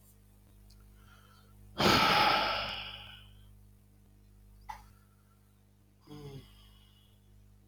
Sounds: Sigh